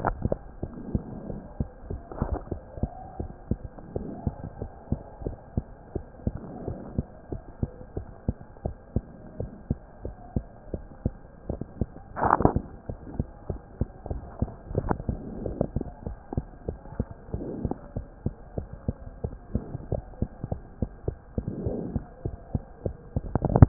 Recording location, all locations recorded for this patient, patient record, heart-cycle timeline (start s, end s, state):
mitral valve (MV)
aortic valve (AV)+pulmonary valve (PV)+tricuspid valve (TV)+mitral valve (MV)
#Age: Child
#Sex: Female
#Height: 108.0 cm
#Weight: 17.2 kg
#Pregnancy status: False
#Murmur: Absent
#Murmur locations: nan
#Most audible location: nan
#Systolic murmur timing: nan
#Systolic murmur shape: nan
#Systolic murmur grading: nan
#Systolic murmur pitch: nan
#Systolic murmur quality: nan
#Diastolic murmur timing: nan
#Diastolic murmur shape: nan
#Diastolic murmur grading: nan
#Diastolic murmur pitch: nan
#Diastolic murmur quality: nan
#Outcome: Abnormal
#Campaign: 2015 screening campaign
0.00	3.93	unannotated
3.93	4.06	S1
4.06	4.22	systole
4.22	4.34	S2
4.34	4.58	diastole
4.58	4.70	S1
4.70	4.88	systole
4.88	4.99	S2
4.99	5.22	diastole
5.22	5.34	S1
5.34	5.54	systole
5.54	5.64	S2
5.64	5.91	diastole
5.91	6.03	S1
6.03	6.23	systole
6.23	6.36	S2
6.36	6.66	diastole
6.66	6.78	S1
6.78	6.96	systole
6.96	7.06	S2
7.06	7.30	diastole
7.30	7.42	S1
7.42	7.58	systole
7.58	7.72	S2
7.72	7.93	diastole
7.93	8.08	S1
8.08	8.26	systole
8.26	8.36	S2
8.36	8.62	diastole
8.62	8.76	S1
8.76	8.94	systole
8.94	9.04	S2
9.04	9.38	diastole
9.38	9.50	S1
9.50	9.67	systole
9.67	9.78	S2
9.78	10.03	diastole
10.03	10.13	S1
10.13	10.36	systole
10.36	10.44	S2
10.44	10.71	diastole
10.71	10.82	S1
10.82	11.04	systole
11.04	11.14	S2
11.14	11.45	diastole
11.45	11.62	S1
11.62	11.78	systole
11.78	11.90	S2
11.90	23.68	unannotated